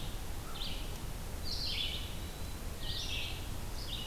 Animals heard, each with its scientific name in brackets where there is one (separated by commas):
American Crow (Corvus brachyrhynchos), Red-eyed Vireo (Vireo olivaceus)